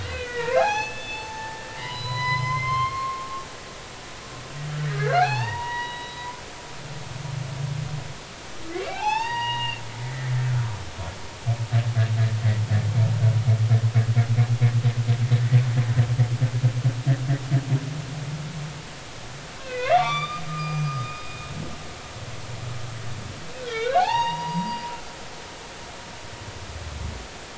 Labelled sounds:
0.0	3.3	humpback whale, 0.80 to 6.3 kHz
4.9	6.3	humpback whale, 0.80 to 4.8 kHz
8.7	10.3	humpback whale, 0.80 to 5.6 kHz
19.6	21.2	humpback whale, 0.93 to 4.9 kHz
23.6	25.8	humpback whale, 0.80 to 4.8 kHz

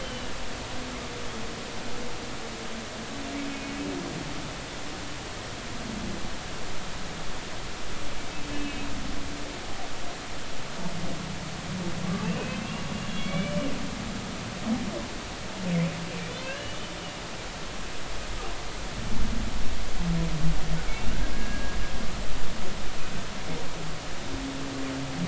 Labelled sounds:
0.0	0.3	humpback whale, 2.8 to 3.2 kHz
8.5	8.9	humpback whale, 2.5 to 2.7 kHz
12.2	13.6	humpback whale, 2.2 to 3.5 kHz
16.4	16.8	humpback whale, 2.6 to 3.0 kHz
21.3	21.8	humpback whale, 1.6 to 1.7 kHz

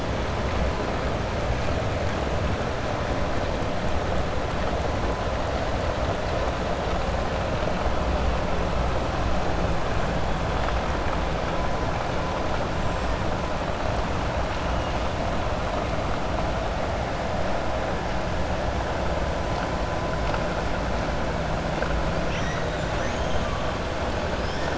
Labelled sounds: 12.7	13.1	killer whale, 6.6 to 8.0 kHz
22.9	23.4	killer whale, 1.8 to 3.8 kHz

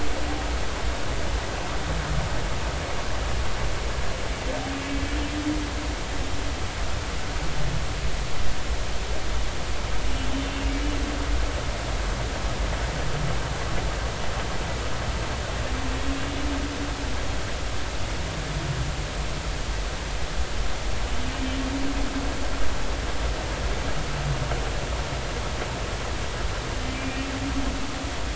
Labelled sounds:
10.3	10.7	humpback whale, 2.7 to 3.1 kHz
16.2	16.5	humpback whale, 2.7 to 2.9 kHz
27.0	27.3	humpback whale, 2.3 to 2.5 kHz

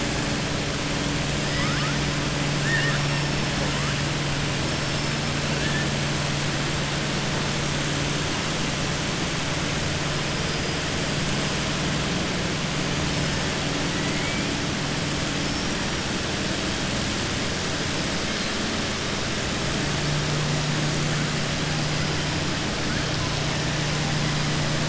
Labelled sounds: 1.5	1.9	killer whale, southern resident, 1.0 to 2.9 kHz
2.6	3.0	killer whale, southern resident, 1.2 to 3.7 kHz
14.1	14.4	killer whale, southern resident, 1.9 to 3.2 kHz

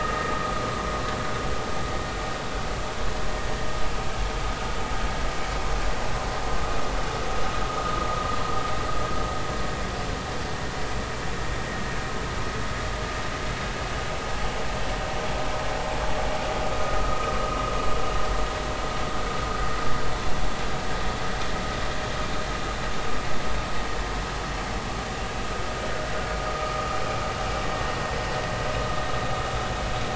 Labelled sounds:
16.9	17.2	vessel noise, 1.2 to 1.3 kHz
26.5	26.8	vessel noise, 1.2 to 1.4 kHz

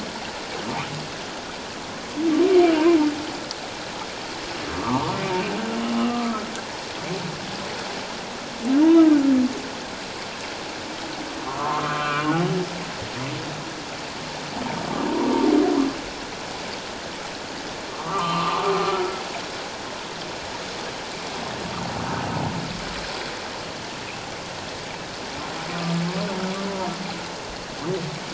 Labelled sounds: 4.7	6.3	humpback whale, 0.78 to 1.3 kHz
8.8	9.1	humpback whale, 2.8 to 3.0 kHz
11.4	12.3	humpback whale, 0.88 to 2.5 kHz
17.9	18.6	humpback whale, 0.88 to 3.0 kHz
25.7	26.0	humpback whale, 1.1 to 1.2 kHz

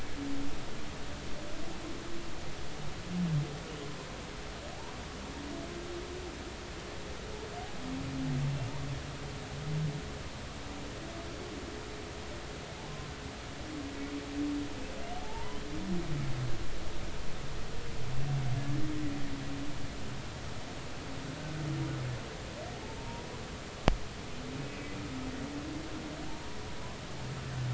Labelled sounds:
15.2	15.6	humpback whale, 0.83 to 1.1 kHz
23.0	23.3	humpback whale, 0.86 to 0.99 kHz

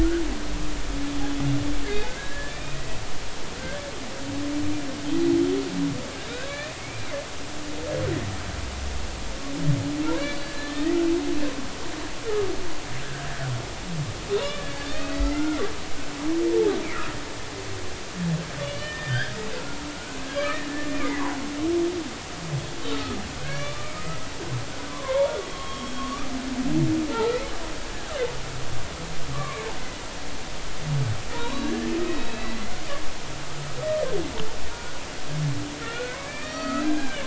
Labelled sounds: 2.1	2.8	humpback whale, 1.5 to 2.5 kHz
6.3	7.1	humpback whale, 1.4 to 4.2 kHz
10.1	11.0	humpback whale, 1.7 to 4.6 kHz
13.0	13.3	humpback whale, 1.5 to 1.8 kHz
14.3	15.6	humpback whale, 1.3 to 4.7 kHz
16.5	16.8	humpback whale, 0.80 to 0.99 kHz
18.6	19.3	humpback whale, 1.4 to 3.7 kHz
19.9	21.2	humpback whale, 1.4 to 2.5 kHz
22.9	23.8	humpback whale, 1.2 to 2.4 kHz
24.5	26.3	humpback whale, 0.86 to 3.5 kHz
27.1	27.4	humpback whale, 1.3 to 1.4 kHz
29.3	29.6	humpback whale, 1.0 to 1.2 kHz
31.3	32.8	humpback whale, 0.90 to 4.2 kHz
35.8	37.2	humpback whale, 1.2 to 4.6 kHz

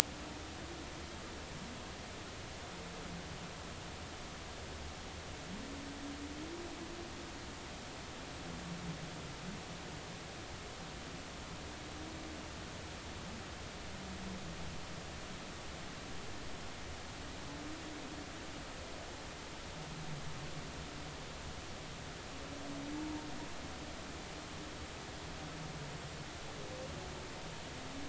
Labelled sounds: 23.0	23.3	humpback whale, 0.83 to 0.99 kHz

